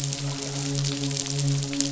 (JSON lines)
{"label": "biophony, midshipman", "recorder": "SoundTrap 500"}